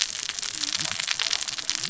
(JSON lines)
{"label": "biophony, cascading saw", "recorder": "SoundTrap 600 or HydroMoth"}